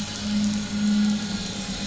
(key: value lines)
label: anthrophony, boat engine
recorder: SoundTrap 500